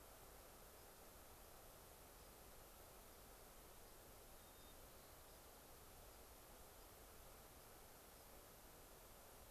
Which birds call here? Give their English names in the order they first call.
White-crowned Sparrow